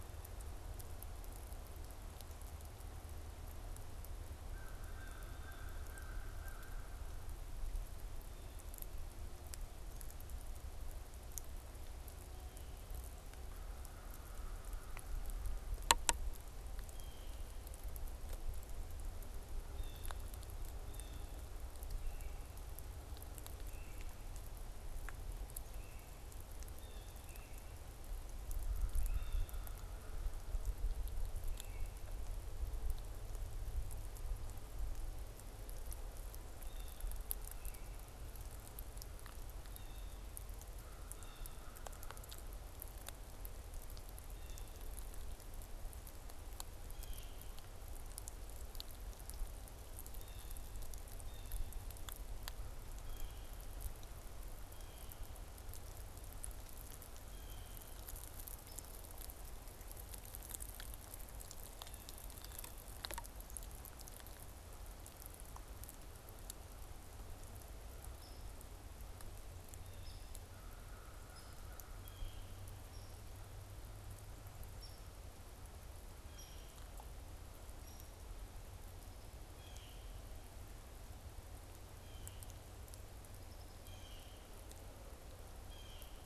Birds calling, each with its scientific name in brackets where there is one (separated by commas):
Tufted Titmouse (Baeolophus bicolor), Downy Woodpecker (Dryobates pubescens), Blue Jay (Cyanocitta cristata), American Crow (Corvus brachyrhynchos)